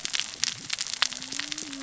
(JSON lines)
{"label": "biophony, cascading saw", "recorder": "SoundTrap 600 or HydroMoth"}